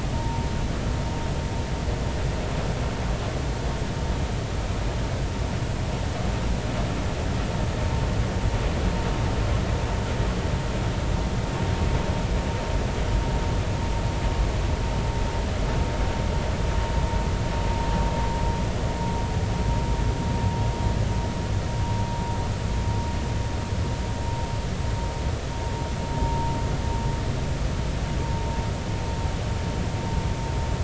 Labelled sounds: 26.2	26.5	vessel noise, 0.86 to 0.96 kHz

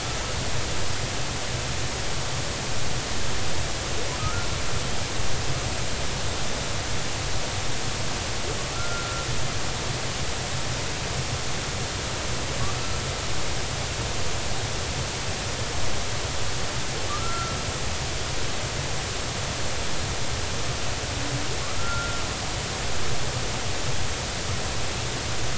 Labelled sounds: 4.2	4.5	humpback whale, 1.2 to 1.5 kHz
8.7	9.3	humpback whale, 1.3 to 1.4 kHz
17.1	17.6	humpback whale, 1.1 to 1.4 kHz
21.8	22.2	humpback whale, 1.3 to 1.4 kHz

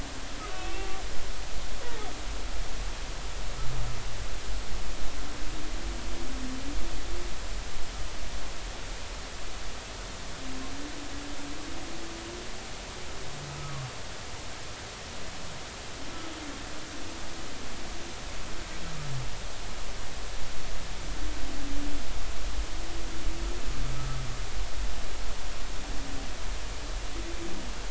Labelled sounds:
0.5	0.9	humpback whale, 2.5 to 2.8 kHz

